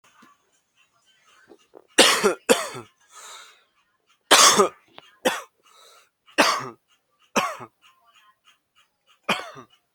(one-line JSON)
{"expert_labels": [{"quality": "good", "cough_type": "dry", "dyspnea": false, "wheezing": false, "stridor": false, "choking": false, "congestion": false, "nothing": true, "diagnosis": "upper respiratory tract infection", "severity": "mild"}], "age": 18, "gender": "male", "respiratory_condition": false, "fever_muscle_pain": false, "status": "healthy"}